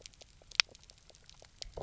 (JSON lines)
{"label": "biophony, knock croak", "recorder": "SoundTrap 300"}